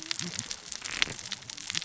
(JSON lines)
{"label": "biophony, cascading saw", "recorder": "SoundTrap 600 or HydroMoth"}